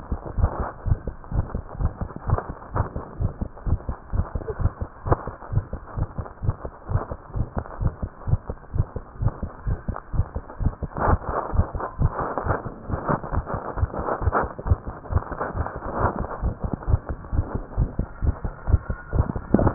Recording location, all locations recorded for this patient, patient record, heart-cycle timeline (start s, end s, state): tricuspid valve (TV)
aortic valve (AV)+pulmonary valve (PV)+tricuspid valve (TV)+mitral valve (MV)
#Age: Child
#Sex: Female
#Height: 97.0 cm
#Weight: 13.5 kg
#Pregnancy status: False
#Murmur: Present
#Murmur locations: mitral valve (MV)+tricuspid valve (TV)
#Most audible location: tricuspid valve (TV)
#Systolic murmur timing: Early-systolic
#Systolic murmur shape: Plateau
#Systolic murmur grading: I/VI
#Systolic murmur pitch: Low
#Systolic murmur quality: Blowing
#Diastolic murmur timing: nan
#Diastolic murmur shape: nan
#Diastolic murmur grading: nan
#Diastolic murmur pitch: nan
#Diastolic murmur quality: nan
#Outcome: Abnormal
#Campaign: 2015 screening campaign
0.00	5.82	unannotated
5.82	5.94	diastole
5.94	6.06	S1
6.06	6.16	systole
6.16	6.26	S2
6.26	6.42	diastole
6.42	6.54	S1
6.54	6.62	systole
6.62	6.70	S2
6.70	6.90	diastole
6.90	7.02	S1
7.02	7.09	systole
7.09	7.17	S2
7.17	7.35	diastole
7.35	7.46	S1
7.46	7.55	systole
7.55	7.64	S2
7.64	7.80	diastole
7.80	7.92	S1
7.92	8.01	systole
8.01	8.10	S2
8.10	8.28	diastole
8.28	8.38	S1
8.38	8.48	systole
8.48	8.56	S2
8.56	8.73	diastole
8.73	8.86	S1
8.86	8.94	systole
8.94	9.04	S2
9.04	9.20	diastole
9.20	9.32	S1
9.32	9.42	systole
9.42	9.50	S2
9.50	9.65	diastole
9.65	9.78	S1
9.78	9.87	systole
9.87	9.96	S2
9.96	10.14	diastole
10.14	10.26	S1
10.26	10.33	systole
10.33	10.42	S2
10.42	10.60	diastole
10.60	10.74	S1
10.74	19.74	unannotated